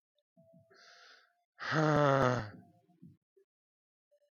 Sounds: Sigh